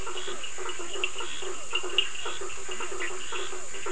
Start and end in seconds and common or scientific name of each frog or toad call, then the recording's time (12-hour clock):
0.0	3.9	blacksmith tree frog
0.0	3.9	Physalaemus cuvieri
1.3	1.7	Leptodactylus latrans
2.7	2.9	Leptodactylus latrans
2.9	3.2	Bischoff's tree frog
9:15pm